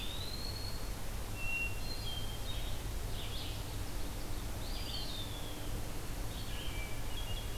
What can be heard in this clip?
Eastern Wood-Pewee, Hermit Thrush, Red-eyed Vireo, Ovenbird